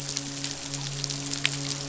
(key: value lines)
label: biophony, midshipman
recorder: SoundTrap 500